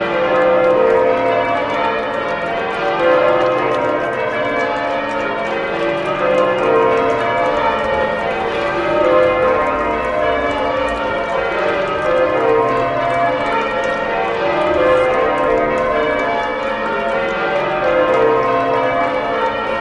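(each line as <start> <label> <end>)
0.0 Background crowd clapping muffled. 19.8
0.0 Loud and overwhelming church bells ring. 19.8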